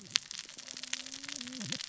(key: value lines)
label: biophony, cascading saw
recorder: SoundTrap 600 or HydroMoth